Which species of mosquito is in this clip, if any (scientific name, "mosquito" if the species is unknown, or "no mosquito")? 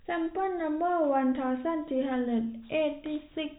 no mosquito